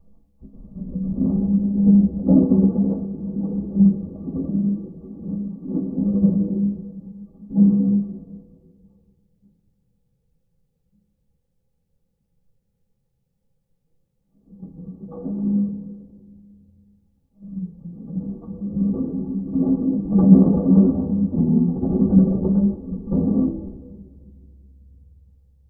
What instrument does it sound like?
drum